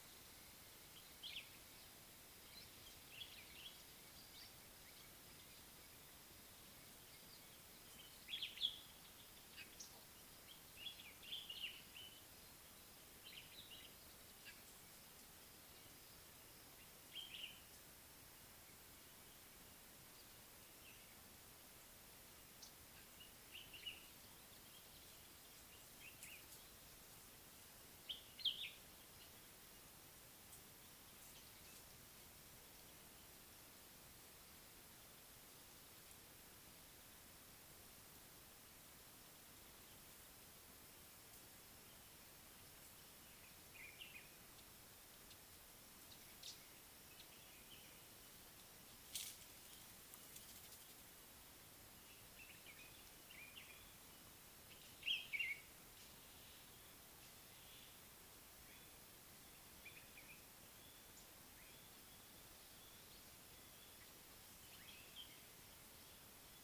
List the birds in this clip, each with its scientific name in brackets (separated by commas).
White-browed Robin-Chat (Cossypha heuglini), Common Bulbul (Pycnonotus barbatus)